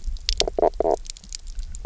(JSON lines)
{"label": "biophony, knock croak", "recorder": "SoundTrap 300"}